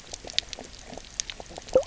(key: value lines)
label: biophony, knock croak
recorder: SoundTrap 300